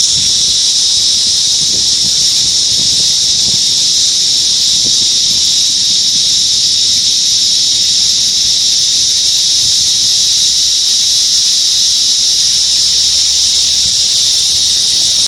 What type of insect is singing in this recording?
cicada